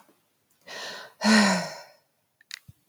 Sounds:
Sigh